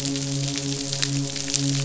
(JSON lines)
{"label": "biophony, midshipman", "recorder": "SoundTrap 500"}